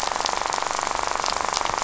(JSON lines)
{"label": "biophony, rattle", "recorder": "SoundTrap 500"}